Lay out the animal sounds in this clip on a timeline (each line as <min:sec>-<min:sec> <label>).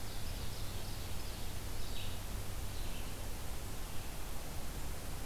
0:00.0-0:01.7 Ovenbird (Seiurus aurocapilla)
0:00.0-0:05.2 Red-eyed Vireo (Vireo olivaceus)